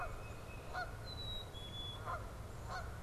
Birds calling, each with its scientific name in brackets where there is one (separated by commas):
Canada Goose (Branta canadensis), Black-capped Chickadee (Poecile atricapillus), Tufted Titmouse (Baeolophus bicolor)